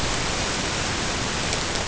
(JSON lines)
{"label": "ambient", "recorder": "HydroMoth"}